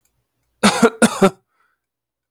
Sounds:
Cough